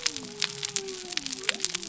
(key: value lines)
label: biophony
recorder: SoundTrap 300